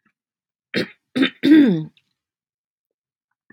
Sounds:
Throat clearing